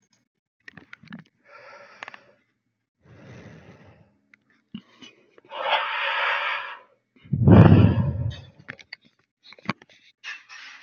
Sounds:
Sigh